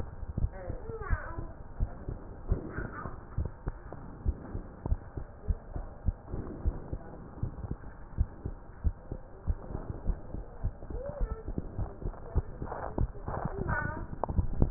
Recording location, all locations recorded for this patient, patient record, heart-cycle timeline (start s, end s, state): tricuspid valve (TV)
aortic valve (AV)+pulmonary valve (PV)+tricuspid valve (TV)+mitral valve (MV)
#Age: Child
#Sex: Female
#Height: 115.0 cm
#Weight: 26.8 kg
#Pregnancy status: False
#Murmur: Absent
#Murmur locations: nan
#Most audible location: nan
#Systolic murmur timing: nan
#Systolic murmur shape: nan
#Systolic murmur grading: nan
#Systolic murmur pitch: nan
#Systolic murmur quality: nan
#Diastolic murmur timing: nan
#Diastolic murmur shape: nan
#Diastolic murmur grading: nan
#Diastolic murmur pitch: nan
#Diastolic murmur quality: nan
#Outcome: Normal
#Campaign: 2015 screening campaign
0.00	0.14	unannotated
0.14	0.38	diastole
0.38	0.52	S1
0.52	0.68	systole
0.68	0.82	S2
0.82	1.06	diastole
1.06	1.20	S1
1.20	1.36	systole
1.36	1.50	S2
1.50	1.76	diastole
1.76	1.90	S1
1.90	2.06	systole
2.06	2.20	S2
2.20	2.46	diastole
2.46	2.64	S1
2.64	2.78	systole
2.78	2.90	S2
2.90	3.34	diastole
3.34	3.50	S1
3.50	3.65	systole
3.65	3.76	S2
3.76	4.24	diastole
4.24	4.38	S1
4.38	4.54	systole
4.54	4.64	S2
4.64	4.86	diastole
4.86	5.02	S1
5.02	5.15	systole
5.15	5.28	S2
5.28	5.46	diastole
5.46	5.60	S1
5.60	5.74	systole
5.74	5.86	S2
5.86	6.04	diastole
6.04	6.18	S1
6.18	6.34	systole
6.34	6.46	S2
6.46	6.64	diastole
6.64	6.74	S1
6.74	6.91	systole
6.91	7.01	S2
7.01	7.38	diastole
7.38	7.51	S1
7.51	7.67	systole
7.67	7.79	S2
7.79	8.16	diastole
8.16	8.30	S1
8.30	8.44	systole
8.44	8.56	S2
8.56	8.82	diastole
8.82	8.96	S1
8.96	9.09	systole
9.09	9.20	S2
9.20	9.46	diastole
9.46	9.60	S1
9.60	9.72	systole
9.72	9.84	S2
9.84	10.06	diastole
10.06	10.20	S1
10.20	10.32	systole
10.32	10.42	S2
10.42	10.62	diastole
10.62	10.74	S1
10.74	10.88	systole
10.88	11.02	S2
11.02	11.20	diastole
11.20	14.70	unannotated